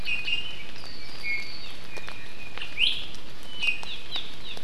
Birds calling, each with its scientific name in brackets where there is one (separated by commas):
Iiwi (Drepanis coccinea), Hawaii Amakihi (Chlorodrepanis virens)